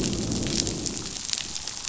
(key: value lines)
label: biophony, growl
recorder: SoundTrap 500